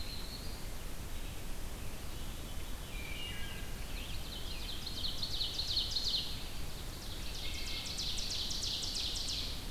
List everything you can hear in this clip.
Yellow-rumped Warbler, Veery, Wood Thrush, Scarlet Tanager, Ovenbird